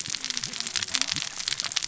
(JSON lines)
{"label": "biophony, cascading saw", "recorder": "SoundTrap 600 or HydroMoth"}